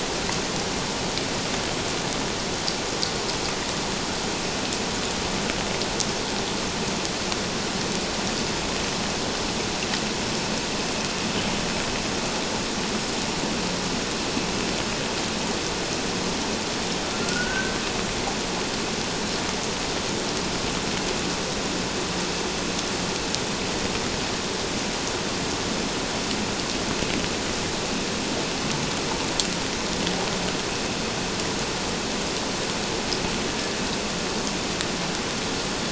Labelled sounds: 17.2	17.7	killer whale, 1.3 to 1.6 kHz

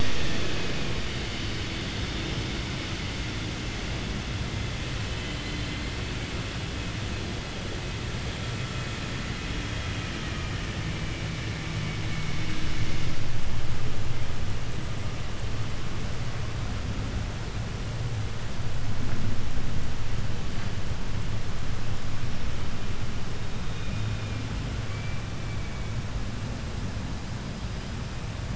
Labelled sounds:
4.9	6.6	killer whale, southern resident, J pod, call S01, 1.7 to 8.0 kHz
21.6	22.6	killer whale, 4.7 to 5.6 kHz
23.2	24.5	killer whale, 1.9 to 4.3 kHz
24.8	28.5	killer whale, 0.96 to 5.2 kHz

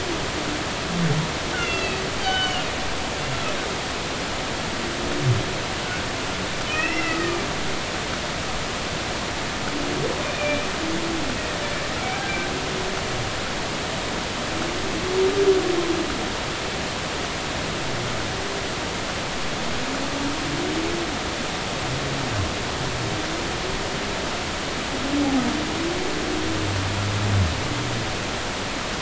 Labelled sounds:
1.5	2.6	humpback whale, 1.4 to 4.8 kHz
6.7	7.4	humpback whale, 1.2 to 2.8 kHz
10.2	10.7	humpback whale, 2.3 to 2.5 kHz

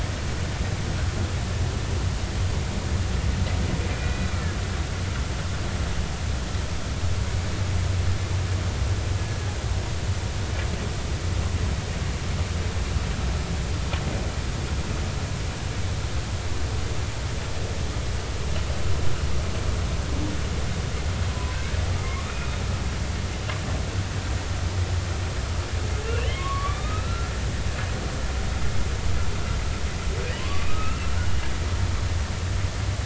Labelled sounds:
3.9	4.3	humpback whale, 2.3 to 4.0 kHz
22.3	22.6	humpback whale, 2.4 to 2.5 kHz
26.0	27.3	humpback whale, 1.0 to 3.3 kHz
30.4	31.1	humpback whale, 0.99 to 2.8 kHz

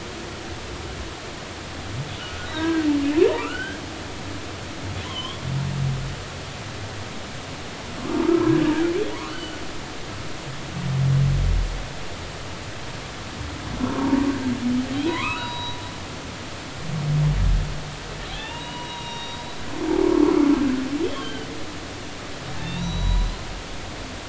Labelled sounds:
2.2	2.9	humpback whale, 1.1 to 1.7 kHz
3.3	3.8	humpback whale, 0.86 to 3.3 kHz
5.0	5.4	humpback whale, 0.96 to 3.5 kHz
8.2	8.7	humpback whale, 1.2 to 1.7 kHz
9.3	9.6	humpback whale, 2.9 to 3.1 kHz
15.1	15.8	humpback whale, 0.93 to 4.1 kHz
18.3	19.7	humpback whale, 0.86 to 5.7 kHz
20.0	21.5	humpback whale, 0.99 to 3.5 kHz
22.6	23.5	humpback whale, 0.93 to 5.9 kHz

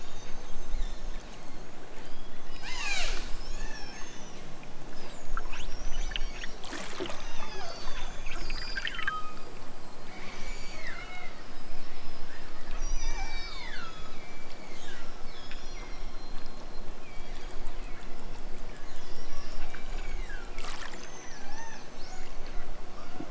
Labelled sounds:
0.1	1.2	killer whale, southern Alaska resident, 3.1 to 8.0 kHz
1.9	4.5	killer whale, southern Alaska resident, 0.28 to 8.0 kHz
5.3	6.6	killer whale, southern Alaska resident, 0.83 to 7.8 kHz
8.0	9.4	killer whale, southern Alaska resident, 1.1 to 8.0 kHz
10.1	11.4	killer whale, southern Alaska resident, 0.69 to 8.0 kHz
12.7	16.1	killer whale, southern Alaska resident, 0.46 to 8.0 kHz
17.0	18.0	killer whale, southern Alaska resident, 1.4 to 7.3 kHz
18.7	20.5	killer whale, southern Alaska resident, 1.1 to 8.0 kHz

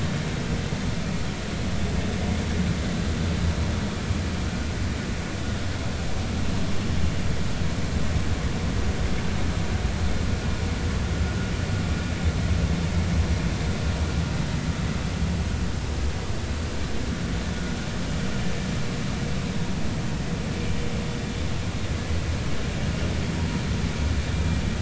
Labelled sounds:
23.4	23.6	vessel noise, 0.90 to 0.99 kHz

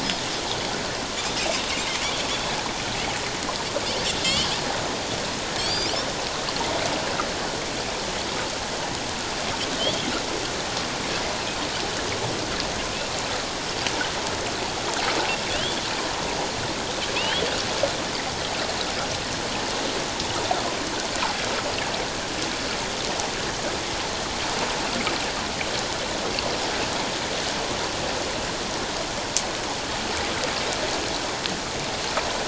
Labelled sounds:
2.0	2.3	Pacific white-sided dolphin, 3.1 to 3.6 kHz
4.2	4.5	Pacific white-sided dolphin, 2.6 to 3.4 kHz
5.6	5.9	Pacific white-sided dolphin, 3.2 to 5.3 kHz
17.1	17.4	Pacific white-sided dolphin, 2.4 to 3.5 kHz

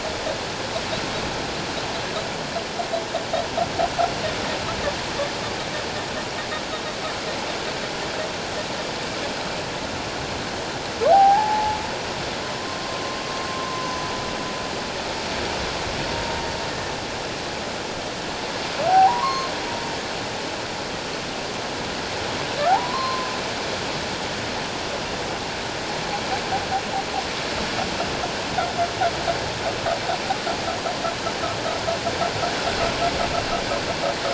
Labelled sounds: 11.1	11.8	humpback whale, 0.78 to 1.8 kHz
13.7	14.1	humpback whale, 0.94 to 6.2 kHz
18.9	19.5	humpback whale, 0.78 to 4.3 kHz
22.7	23.3	humpback whale, 0.78 to 4.4 kHz

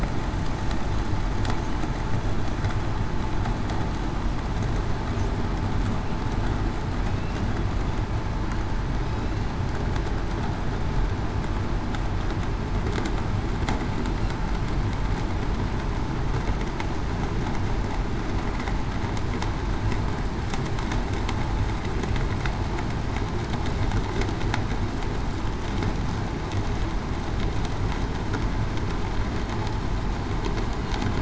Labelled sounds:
7.0	7.5	killer whale, southern resident, 2.5 to 2.9 kHz

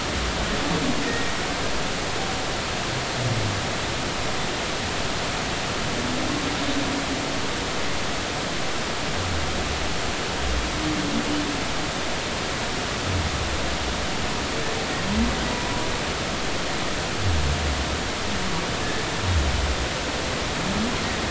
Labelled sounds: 1.0	1.3	humpback whale, 1.8 to 1.9 kHz
15.5	15.8	humpback whale, 0.93 to 1.1 kHz

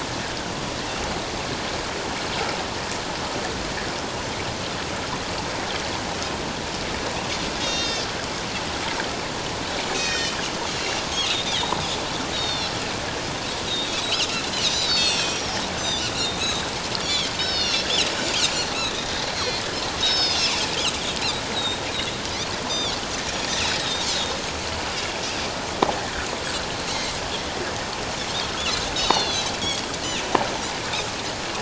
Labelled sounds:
7.6	8.1	Pacific white-sided dolphin, 2.6 to 6.6 kHz
9.9	10.4	Pacific white-sided dolphin, 1.8 to 7.8 kHz
10.7	11.0	Pacific white-sided dolphin, 2.7 to 2.9 kHz
11.2	12.7	Pacific white-sided dolphin, 2.9 to 4.6 kHz
13.7	13.9	Pacific white-sided dolphin, 3.6 to 4.1 kHz
14.6	16.4	Pacific white-sided dolphin, 2.4 to 7.9 kHz
17.0	18.1	Pacific white-sided dolphin, 2.6 to 5.8 kHz
19.4	20.5	Pacific white-sided dolphin, 2.8 to 5.9 kHz
21.5	21.8	Pacific white-sided dolphin, 3.6 to 4.1 kHz
22.7	23.0	Pacific white-sided dolphin, 3.2 to 6.2 kHz
23.2	24.1	Pacific white-sided dolphin, 3.5 to 5.8 kHz
29.0	29.6	Pacific white-sided dolphin, 2.6 to 4.6 kHz

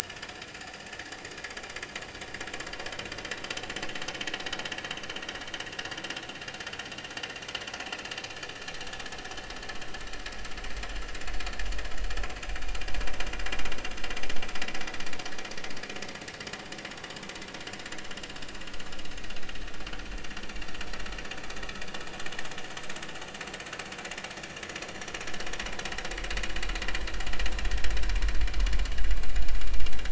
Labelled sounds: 0.0	0.9	vessel noise, 1.7 to 4.9 kHz

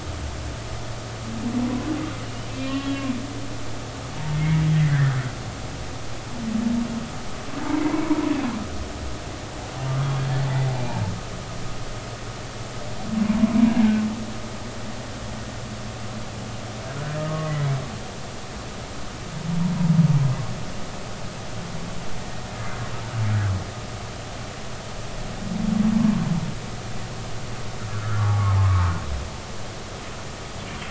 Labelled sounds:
2.6	3.0	humpback whale, 1.8 to 3.4 kHz
4.3	4.6	humpback whale, 2.0 to 2.3 kHz
7.8	8.2	humpback whale, 0.90 to 1.1 kHz
13.4	14.0	humpback whale, 0.93 to 1.7 kHz
17.3	17.7	humpback whale, 1.1 to 2.1 kHz
27.9	28.9	humpback whale, 0.99 to 1.7 kHz

